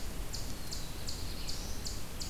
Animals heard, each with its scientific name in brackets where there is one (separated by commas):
Eastern Chipmunk (Tamias striatus), Black-throated Blue Warbler (Setophaga caerulescens)